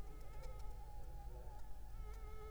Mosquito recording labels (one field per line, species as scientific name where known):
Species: Anopheles arabiensis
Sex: female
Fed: unfed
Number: one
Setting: cup